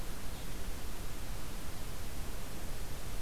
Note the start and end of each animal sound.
[0.00, 3.21] Red-eyed Vireo (Vireo olivaceus)

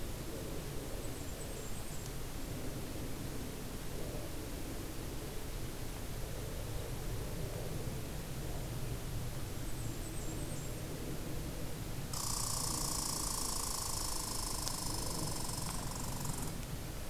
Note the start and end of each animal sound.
[0.79, 2.07] Blackburnian Warbler (Setophaga fusca)
[9.36, 10.94] Blackburnian Warbler (Setophaga fusca)
[12.06, 16.53] Red Squirrel (Tamiasciurus hudsonicus)

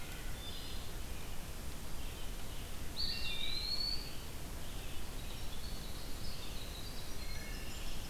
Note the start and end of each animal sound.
[0.00, 0.90] Wood Thrush (Hylocichla mustelina)
[0.00, 8.10] Red-eyed Vireo (Vireo olivaceus)
[2.68, 4.38] Eastern Wood-Pewee (Contopus virens)
[2.95, 3.83] Wood Thrush (Hylocichla mustelina)
[4.72, 8.10] Winter Wren (Troglodytes hiemalis)
[7.16, 8.10] Wood Thrush (Hylocichla mustelina)

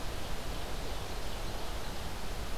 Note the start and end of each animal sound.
[0.00, 2.15] Ovenbird (Seiurus aurocapilla)

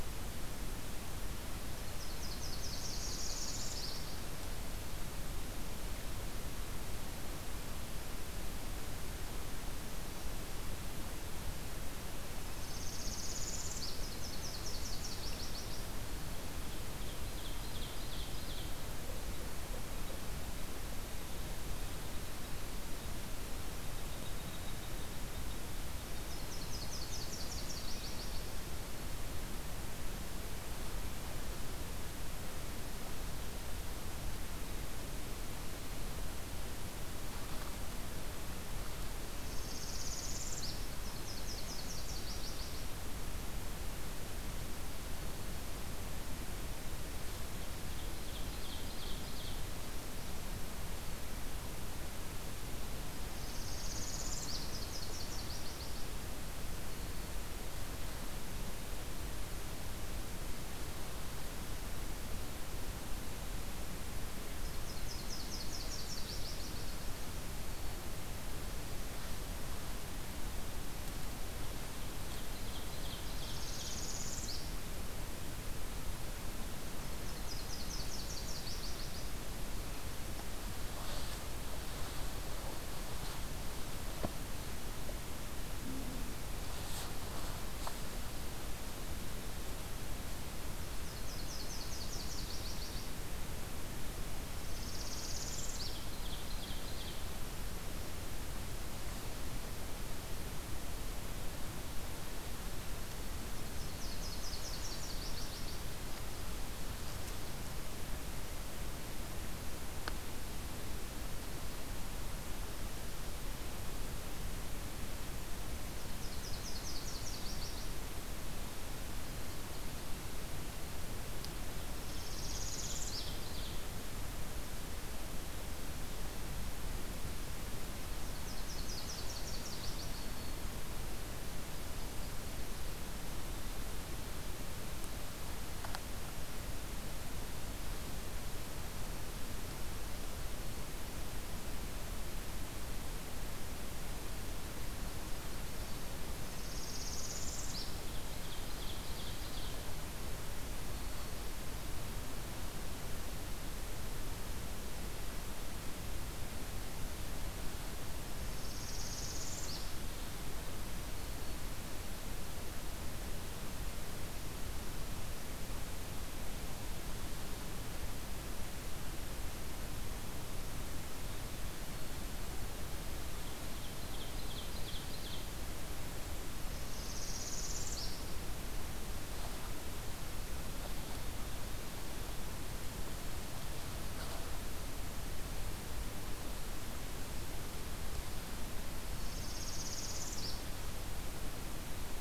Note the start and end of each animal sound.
[1.73, 4.16] Nashville Warbler (Leiothlypis ruficapilla)
[2.35, 4.09] Northern Parula (Setophaga americana)
[12.28, 14.09] Northern Parula (Setophaga americana)
[13.62, 15.93] Nashville Warbler (Leiothlypis ruficapilla)
[16.83, 18.73] Ovenbird (Seiurus aurocapilla)
[25.92, 28.80] Nashville Warbler (Leiothlypis ruficapilla)
[39.30, 40.88] Northern Parula (Setophaga americana)
[40.73, 43.08] Nashville Warbler (Leiothlypis ruficapilla)
[47.54, 49.69] Ovenbird (Seiurus aurocapilla)
[53.14, 54.77] Northern Parula (Setophaga americana)
[54.38, 56.32] Nashville Warbler (Leiothlypis ruficapilla)
[64.47, 67.41] Nashville Warbler (Leiothlypis ruficapilla)
[71.63, 74.20] Ovenbird (Seiurus aurocapilla)
[73.28, 75.00] Northern Parula (Setophaga americana)
[76.80, 79.59] Nashville Warbler (Leiothlypis ruficapilla)
[90.67, 93.41] Nashville Warbler (Leiothlypis ruficapilla)
[94.50, 96.08] Northern Parula (Setophaga americana)
[95.69, 97.33] Ovenbird (Seiurus aurocapilla)
[103.43, 105.91] Nashville Warbler (Leiothlypis ruficapilla)
[115.76, 118.23] Nashville Warbler (Leiothlypis ruficapilla)
[121.73, 123.86] Ovenbird (Seiurus aurocapilla)
[121.74, 123.42] Northern Parula (Setophaga americana)
[127.94, 130.83] Nashville Warbler (Leiothlypis ruficapilla)
[146.37, 148.05] Northern Parula (Setophaga americana)
[147.92, 149.99] Ovenbird (Seiurus aurocapilla)
[158.24, 160.00] Northern Parula (Setophaga americana)
[173.28, 175.56] Ovenbird (Seiurus aurocapilla)
[176.48, 178.35] Northern Parula (Setophaga americana)
[188.95, 190.78] Northern Parula (Setophaga americana)

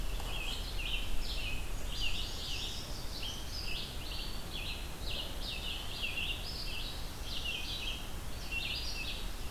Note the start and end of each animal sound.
[0.18, 9.51] Red-eyed Vireo (Vireo olivaceus)
[1.64, 3.81] Nashville Warbler (Leiothlypis ruficapilla)

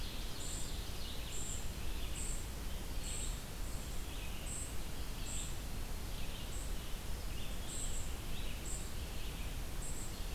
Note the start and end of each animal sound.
[0.00, 1.39] Ovenbird (Seiurus aurocapilla)
[0.00, 10.34] Red-eyed Vireo (Vireo olivaceus)
[0.00, 10.34] unidentified call

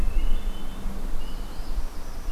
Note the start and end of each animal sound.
[0.00, 1.06] Hermit Thrush (Catharus guttatus)
[0.90, 2.32] Northern Parula (Setophaga americana)

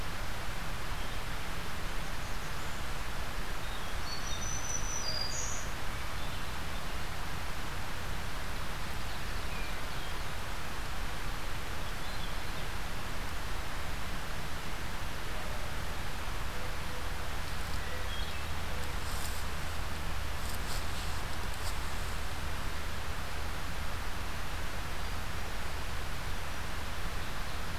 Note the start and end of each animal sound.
[1.46, 3.12] unidentified call
[3.50, 4.31] Hermit Thrush (Catharus guttatus)
[3.95, 5.79] Black-throated Green Warbler (Setophaga virens)
[9.12, 10.16] Hermit Thrush (Catharus guttatus)
[11.80, 12.68] Hermit Thrush (Catharus guttatus)
[17.78, 18.51] Hermit Thrush (Catharus guttatus)

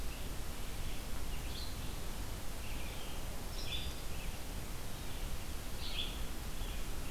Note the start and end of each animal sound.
[0.00, 7.10] Red-eyed Vireo (Vireo olivaceus)

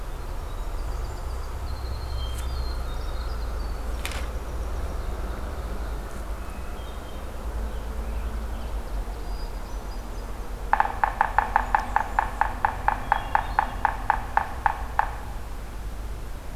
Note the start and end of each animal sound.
[0.09, 5.06] Winter Wren (Troglodytes hiemalis)
[1.90, 3.47] Hermit Thrush (Catharus guttatus)
[6.25, 7.45] Hermit Thrush (Catharus guttatus)
[7.67, 9.27] Ovenbird (Seiurus aurocapilla)
[9.11, 10.49] Hermit Thrush (Catharus guttatus)
[10.59, 15.29] Yellow-bellied Sapsucker (Sphyrapicus varius)
[11.02, 12.47] Blackburnian Warbler (Setophaga fusca)

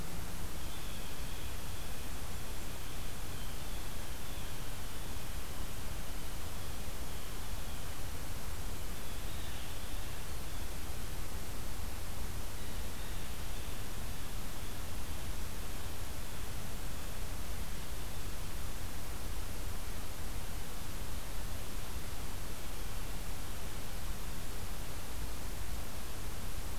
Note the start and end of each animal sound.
[0.53, 5.92] Blue Jay (Cyanocitta cristata)
[6.37, 8.07] Blue Jay (Cyanocitta cristata)
[8.79, 10.78] Blue Jay (Cyanocitta cristata)
[12.53, 17.27] Blue Jay (Cyanocitta cristata)

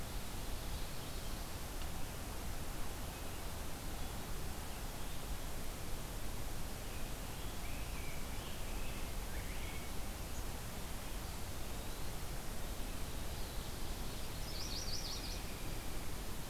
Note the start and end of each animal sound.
[6.59, 9.88] Rose-breasted Grosbeak (Pheucticus ludovicianus)
[14.30, 15.47] Yellow-rumped Warbler (Setophaga coronata)

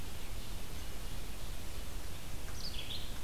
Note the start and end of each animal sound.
[0.00, 1.77] Ovenbird (Seiurus aurocapilla)
[2.43, 3.17] Red-eyed Vireo (Vireo olivaceus)

